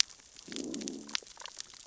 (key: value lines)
label: biophony, growl
recorder: SoundTrap 600 or HydroMoth